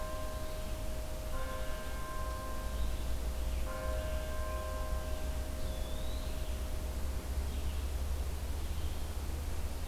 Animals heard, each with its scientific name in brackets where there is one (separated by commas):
Red-eyed Vireo (Vireo olivaceus), Eastern Wood-Pewee (Contopus virens)